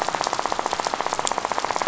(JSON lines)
{"label": "biophony, rattle", "recorder": "SoundTrap 500"}